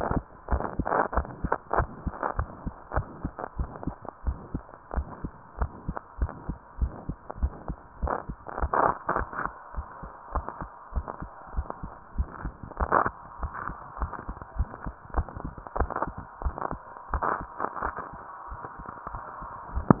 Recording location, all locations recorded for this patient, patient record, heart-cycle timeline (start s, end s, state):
mitral valve (MV)
aortic valve (AV)+pulmonary valve (PV)+tricuspid valve (TV)+mitral valve (MV)
#Age: Child
#Sex: Female
#Height: 149.0 cm
#Weight: 32.9 kg
#Pregnancy status: False
#Murmur: Present
#Murmur locations: aortic valve (AV)+mitral valve (MV)+pulmonary valve (PV)+tricuspid valve (TV)
#Most audible location: tricuspid valve (TV)
#Systolic murmur timing: Holosystolic
#Systolic murmur shape: Plateau
#Systolic murmur grading: II/VI
#Systolic murmur pitch: Medium
#Systolic murmur quality: Harsh
#Diastolic murmur timing: nan
#Diastolic murmur shape: nan
#Diastolic murmur grading: nan
#Diastolic murmur pitch: nan
#Diastolic murmur quality: nan
#Outcome: Abnormal
#Campaign: 2015 screening campaign
0.00	2.64	unannotated
2.64	2.74	S2
2.74	2.92	diastole
2.92	3.06	S1
3.06	3.22	systole
3.22	3.32	S2
3.32	3.58	diastole
3.58	3.70	S1
3.70	3.86	systole
3.86	3.96	S2
3.96	4.22	diastole
4.22	4.38	S1
4.38	4.52	systole
4.52	4.66	S2
4.66	4.92	diastole
4.92	5.08	S1
5.08	5.22	systole
5.22	5.32	S2
5.32	5.56	diastole
5.56	5.72	S1
5.72	5.86	systole
5.86	5.96	S2
5.96	6.16	diastole
6.16	6.30	S1
6.30	6.46	systole
6.46	6.58	S2
6.58	6.80	diastole
6.80	6.94	S1
6.94	7.08	systole
7.08	7.16	S2
7.16	7.38	diastole
7.38	7.54	S1
7.54	7.68	systole
7.68	7.78	S2
7.78	7.98	diastole
7.98	8.12	S1
8.12	8.26	systole
8.26	8.36	S2
8.36	8.58	diastole
8.58	8.72	S1
8.72	9.73	unannotated
9.73	9.86	S1
9.86	10.00	systole
10.00	10.10	S2
10.10	10.32	diastole
10.32	10.46	S1
10.46	10.59	systole
10.59	10.70	S2
10.70	10.92	diastole
10.92	11.06	S1
11.06	11.20	systole
11.20	11.30	S2
11.30	11.54	diastole
11.54	11.68	S1
11.68	11.82	systole
11.82	11.92	S2
11.92	12.14	diastole
12.14	12.28	S1
12.28	12.42	systole
12.42	12.54	S2
12.54	12.78	diastole
12.78	12.90	S1
12.90	13.06	systole
13.06	13.14	S2
13.14	13.40	diastole
13.40	13.52	S1
13.52	13.66	systole
13.66	13.76	S2
13.76	13.98	diastole
13.98	14.12	S1
14.12	14.26	systole
14.26	14.36	S2
14.36	14.56	diastole
14.56	14.70	S1
14.70	14.84	systole
14.84	14.94	S2
14.94	15.14	diastole
15.14	15.28	S1
15.28	20.00	unannotated